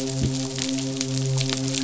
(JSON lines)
{"label": "biophony, midshipman", "recorder": "SoundTrap 500"}